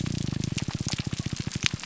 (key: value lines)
label: biophony
recorder: SoundTrap 300